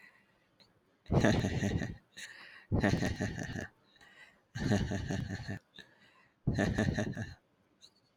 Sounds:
Laughter